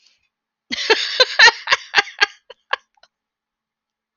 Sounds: Laughter